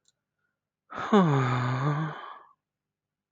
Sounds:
Sigh